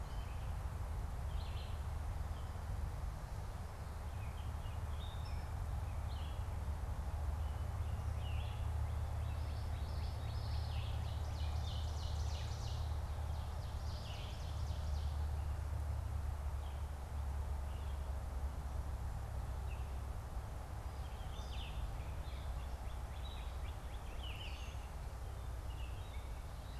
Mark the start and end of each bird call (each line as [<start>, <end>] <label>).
[0.00, 1.90] Red-eyed Vireo (Vireo olivaceus)
[5.90, 11.00] Red-eyed Vireo (Vireo olivaceus)
[9.30, 11.40] Common Yellowthroat (Geothlypis trichas)
[10.50, 15.30] Ovenbird (Seiurus aurocapilla)
[11.50, 25.00] Red-eyed Vireo (Vireo olivaceus)
[21.80, 25.00] Northern Cardinal (Cardinalis cardinalis)